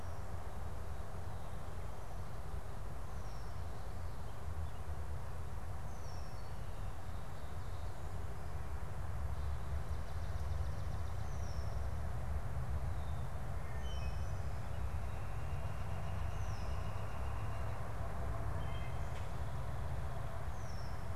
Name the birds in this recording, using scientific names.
unidentified bird, Hylocichla mustelina, Colaptes auratus